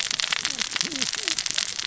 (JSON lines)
{"label": "biophony, cascading saw", "recorder": "SoundTrap 600 or HydroMoth"}